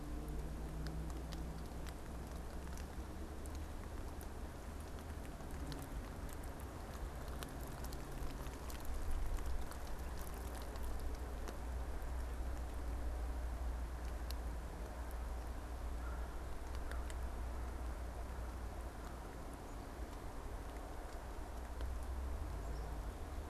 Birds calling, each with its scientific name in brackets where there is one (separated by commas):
Black-capped Chickadee (Poecile atricapillus)